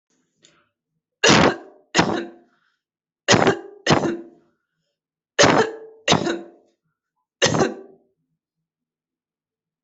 {"expert_labels": [{"quality": "ok", "cough_type": "dry", "dyspnea": false, "wheezing": false, "stridor": false, "choking": false, "congestion": false, "nothing": true, "diagnosis": "COVID-19", "severity": "mild"}], "age": 25, "gender": "female", "respiratory_condition": false, "fever_muscle_pain": false, "status": "healthy"}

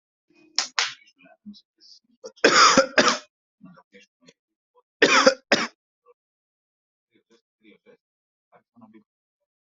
{"expert_labels": [{"quality": "good", "cough_type": "wet", "dyspnea": false, "wheezing": false, "stridor": false, "choking": false, "congestion": false, "nothing": true, "diagnosis": "lower respiratory tract infection", "severity": "mild"}]}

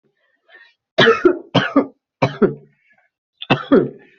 {"expert_labels": [{"quality": "good", "cough_type": "dry", "dyspnea": false, "wheezing": false, "stridor": false, "choking": false, "congestion": false, "nothing": true, "diagnosis": "obstructive lung disease", "severity": "mild"}], "age": 41, "gender": "female", "respiratory_condition": false, "fever_muscle_pain": false, "status": "COVID-19"}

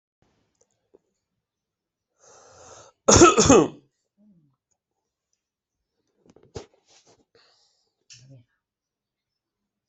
{"expert_labels": [{"quality": "ok", "cough_type": "dry", "dyspnea": false, "wheezing": false, "stridor": false, "choking": false, "congestion": false, "nothing": true, "diagnosis": "upper respiratory tract infection", "severity": "unknown"}]}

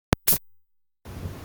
{"expert_labels": [{"quality": "no cough present", "cough_type": "unknown", "dyspnea": false, "wheezing": false, "stridor": false, "choking": false, "congestion": false, "nothing": true, "diagnosis": "healthy cough", "severity": "unknown"}]}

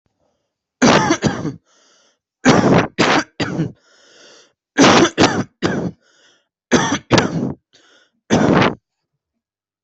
{"expert_labels": [{"quality": "ok", "cough_type": "dry", "dyspnea": false, "wheezing": false, "stridor": false, "choking": false, "congestion": false, "nothing": true, "diagnosis": "COVID-19", "severity": "severe"}], "age": 18, "gender": "male", "respiratory_condition": false, "fever_muscle_pain": true, "status": "healthy"}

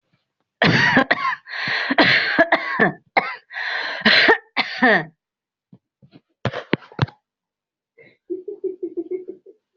{"expert_labels": [{"quality": "good", "cough_type": "dry", "dyspnea": false, "wheezing": false, "stridor": false, "choking": false, "congestion": false, "nothing": true, "diagnosis": "upper respiratory tract infection", "severity": "mild"}], "age": 42, "gender": "male", "respiratory_condition": false, "fever_muscle_pain": false, "status": "symptomatic"}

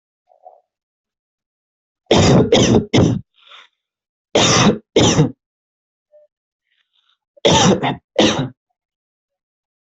{"expert_labels": [{"quality": "good", "cough_type": "dry", "dyspnea": false, "wheezing": false, "stridor": false, "choking": false, "congestion": false, "nothing": true, "diagnosis": "COVID-19", "severity": "mild"}], "gender": "male", "respiratory_condition": false, "fever_muscle_pain": false, "status": "COVID-19"}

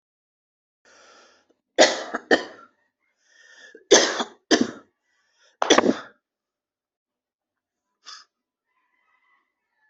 {"expert_labels": [{"quality": "good", "cough_type": "dry", "dyspnea": true, "wheezing": false, "stridor": true, "choking": false, "congestion": false, "nothing": false, "diagnosis": "obstructive lung disease", "severity": "severe"}], "age": 27, "gender": "male", "respiratory_condition": true, "fever_muscle_pain": true, "status": "COVID-19"}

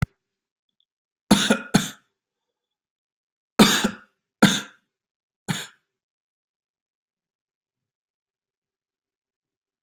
{"expert_labels": [{"quality": "good", "cough_type": "dry", "dyspnea": false, "wheezing": false, "stridor": false, "choking": false, "congestion": false, "nothing": true, "diagnosis": "upper respiratory tract infection", "severity": "mild"}], "age": 32, "gender": "male", "respiratory_condition": false, "fever_muscle_pain": true, "status": "symptomatic"}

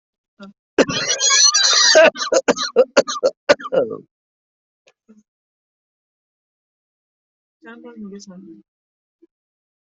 {"expert_labels": [{"quality": "ok", "cough_type": "dry", "dyspnea": false, "wheezing": true, "stridor": false, "choking": false, "congestion": false, "nothing": false, "diagnosis": "obstructive lung disease", "severity": "mild"}, {"quality": "good", "cough_type": "dry", "dyspnea": false, "wheezing": false, "stridor": false, "choking": false, "congestion": false, "nothing": true, "diagnosis": "obstructive lung disease", "severity": "severe"}, {"quality": "good", "cough_type": "unknown", "dyspnea": false, "wheezing": false, "stridor": false, "choking": false, "congestion": false, "nothing": true, "diagnosis": "lower respiratory tract infection", "severity": "severe"}, {"quality": "good", "cough_type": "dry", "dyspnea": true, "wheezing": true, "stridor": false, "choking": false, "congestion": false, "nothing": false, "diagnosis": "obstructive lung disease", "severity": "mild"}], "age": 40, "gender": "male", "respiratory_condition": false, "fever_muscle_pain": false, "status": "healthy"}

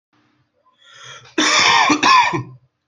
{"expert_labels": [{"quality": "good", "cough_type": "dry", "dyspnea": false, "wheezing": false, "stridor": false, "choking": false, "congestion": true, "nothing": false, "diagnosis": "upper respiratory tract infection", "severity": "mild"}], "age": 39, "gender": "male", "respiratory_condition": false, "fever_muscle_pain": false, "status": "symptomatic"}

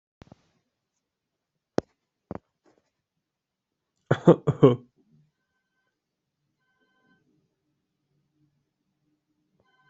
{"expert_labels": [{"quality": "ok", "cough_type": "dry", "dyspnea": false, "wheezing": false, "stridor": false, "choking": false, "congestion": false, "nothing": true, "diagnosis": "healthy cough", "severity": "pseudocough/healthy cough"}]}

